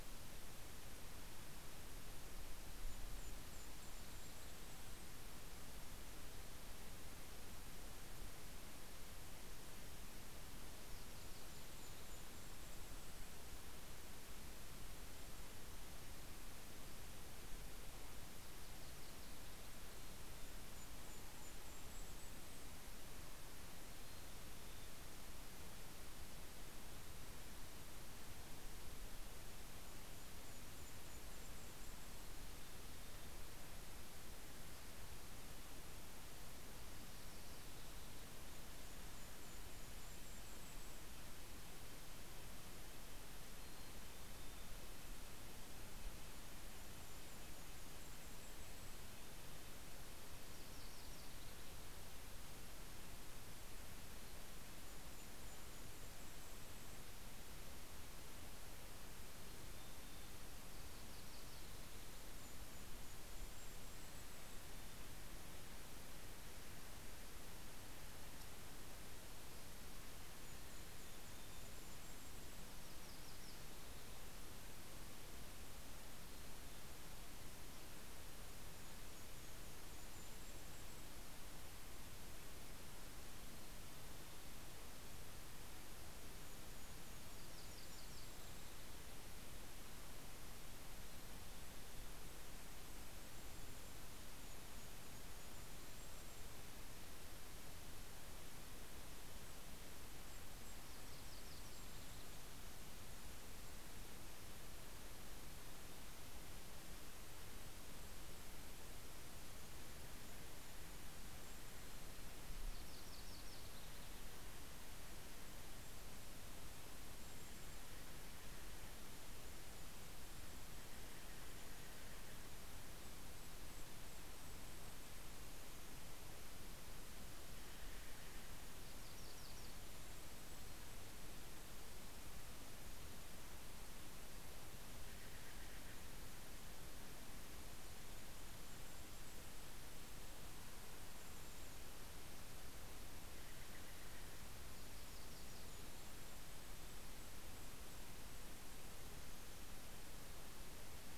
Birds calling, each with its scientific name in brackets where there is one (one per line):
Steller's Jay (Cyanocitta stelleri)
Red-breasted Nuthatch (Sitta canadensis)
Golden-crowned Kinglet (Regulus satrapa)
Mountain Chickadee (Poecile gambeli)
Yellow-rumped Warbler (Setophaga coronata)